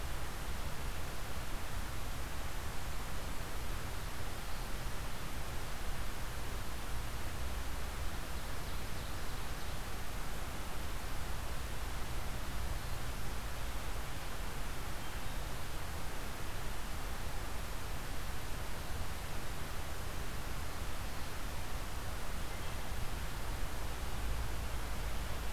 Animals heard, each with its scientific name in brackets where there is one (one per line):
Ovenbird (Seiurus aurocapilla)